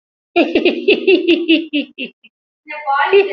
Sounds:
Laughter